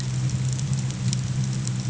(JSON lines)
{"label": "anthrophony, boat engine", "recorder": "HydroMoth"}